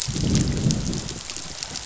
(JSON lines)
{"label": "biophony, growl", "recorder": "SoundTrap 500"}